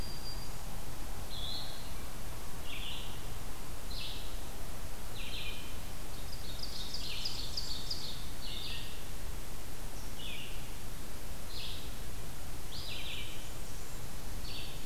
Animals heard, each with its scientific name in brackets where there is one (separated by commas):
Black-throated Green Warbler (Setophaga virens), Ovenbird (Seiurus aurocapilla), Red-eyed Vireo (Vireo olivaceus), Blackburnian Warbler (Setophaga fusca)